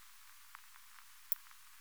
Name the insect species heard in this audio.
Poecilimon ornatus